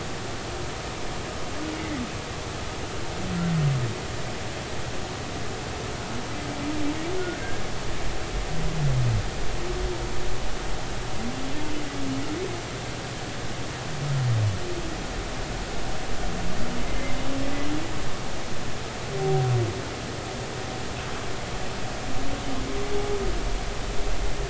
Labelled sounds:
1.8	2.0	humpback whale, 1.9 to 2.2 kHz
7.4	7.7	humpback whale, 1.5 to 1.7 kHz
16.9	17.1	humpback whale, 2.0 to 2.2 kHz
19.2	19.5	humpback whale, 0.80 to 0.83 kHz

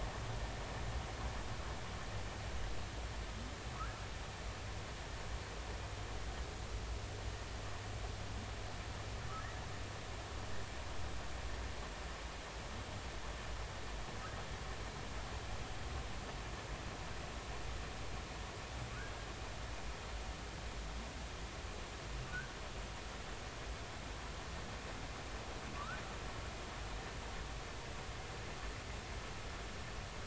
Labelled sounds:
25.7	26.0	humpback whale, 0.96 to 1.6 kHz

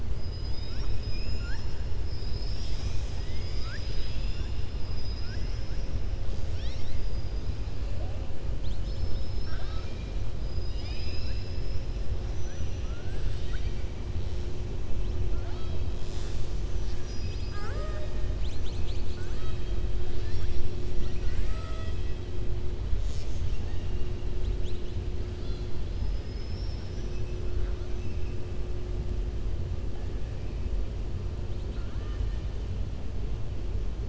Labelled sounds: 0.2	1.8	killer whale, southern resident, 0.99 to 7.1 kHz
8.5	10.1	killer whale, southern resident, 0.78 to 5.5 kHz
10.4	11.9	killer whale, southern resident, 1.7 to 6.6 kHz
12.2	13.9	killer whale, southern resident, 0.78 to 6.1 kHz
15.3	15.8	killer whale, southern resident, 0.65 to 5.4 kHz
19.1	19.7	killer whale, southern resident, 1.1 to 4.5 kHz
20.1	22.1	killer whale, southern resident, 0.66 to 8.0 kHz
23.4	24.1	killer whale, southern resident, 1.6 to 3.7 kHz
25.9	27.3	killer whale, southern resident, 4.4 to 5.9 kHz

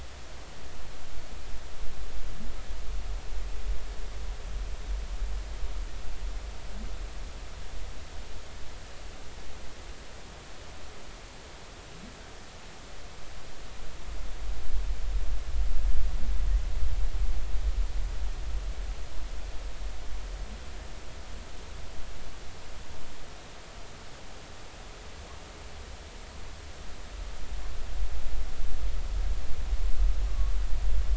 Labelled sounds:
30.3	30.6	humpback whale, 1.1 to 1.2 kHz

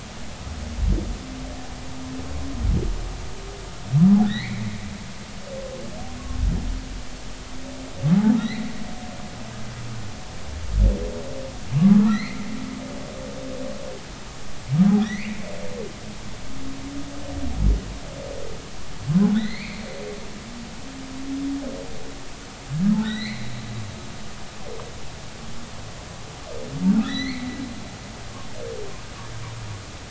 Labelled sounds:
4.3	4.7	humpback whale, 1.7 to 4.6 kHz
8.4	8.7	humpback whale, 1.8 to 4.4 kHz
11.8	12.5	humpback whale, 1.1 to 4.4 kHz
15.0	15.4	humpback whale, 1.7 to 2.6 kHz
19.3	19.8	humpback whale, 1.7 to 4.7 kHz
23.0	23.5	humpback whale, 1.3 to 4.3 kHz
27.0	27.5	humpback whale, 1.7 to 6.1 kHz

